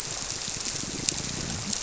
{"label": "biophony", "recorder": "SoundTrap 300"}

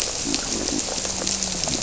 {"label": "biophony, grouper", "recorder": "SoundTrap 300"}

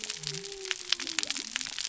{"label": "biophony", "recorder": "SoundTrap 300"}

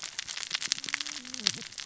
{"label": "biophony, cascading saw", "recorder": "SoundTrap 600 or HydroMoth"}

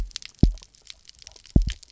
{"label": "biophony, double pulse", "recorder": "SoundTrap 300"}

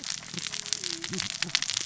{"label": "biophony, cascading saw", "recorder": "SoundTrap 600 or HydroMoth"}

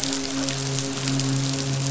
{"label": "biophony, midshipman", "recorder": "SoundTrap 500"}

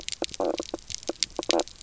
{"label": "biophony, knock croak", "recorder": "SoundTrap 300"}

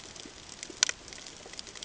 {"label": "ambient", "recorder": "HydroMoth"}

